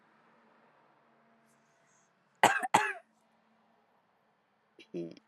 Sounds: Cough